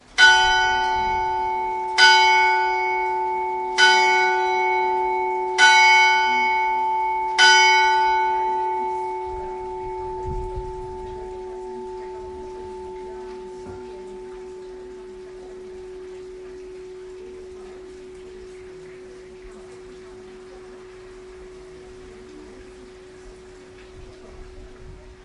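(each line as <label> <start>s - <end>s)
People are talking inside a church. 0.0s - 25.2s
A resonant metallic bell ringing with rich tones and natural reverberation. 0.1s - 9.1s
A resonant metallic church bell ringing with natural reverb. 8.1s - 25.2s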